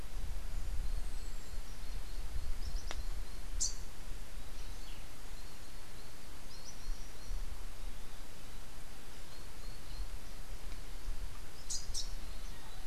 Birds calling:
Rufous-capped Warbler (Basileuterus rufifrons)
Tropical Kingbird (Tyrannus melancholicus)

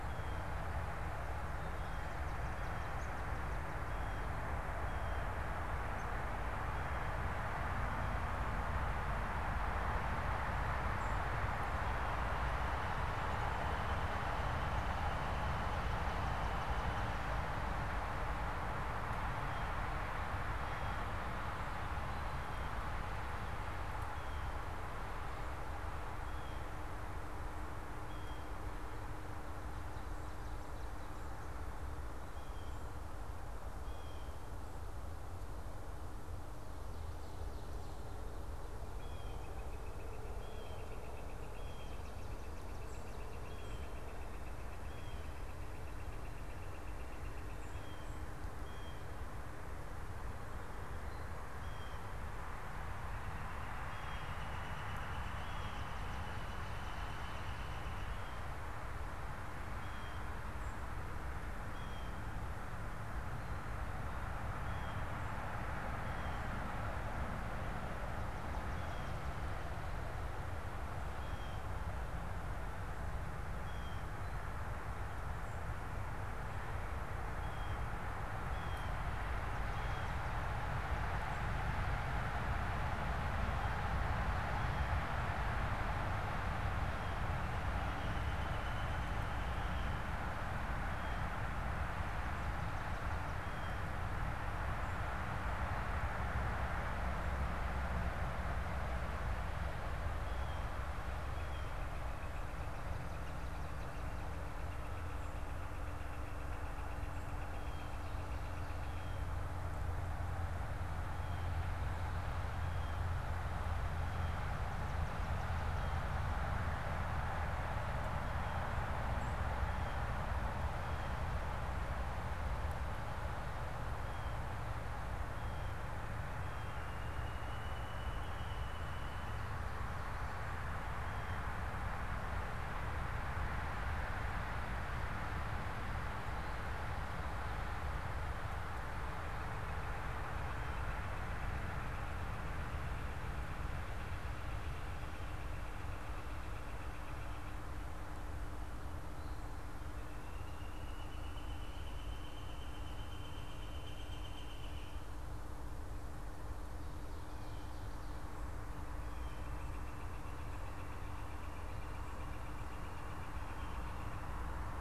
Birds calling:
Northern Flicker (Colaptes auratus)
Swamp Sparrow (Melospiza georgiana)
Blue Jay (Cyanocitta cristata)

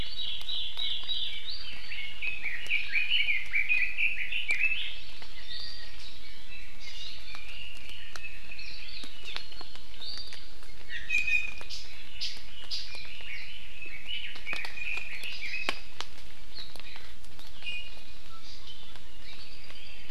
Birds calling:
Iiwi (Drepanis coccinea)
Apapane (Himatione sanguinea)
Red-billed Leiothrix (Leiothrix lutea)
Hawaii Amakihi (Chlorodrepanis virens)

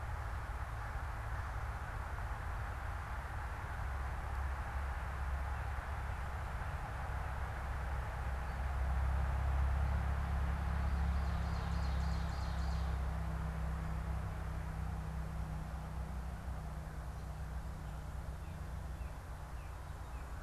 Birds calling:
Northern Cardinal (Cardinalis cardinalis)
Ovenbird (Seiurus aurocapilla)

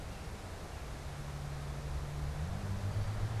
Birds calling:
unidentified bird

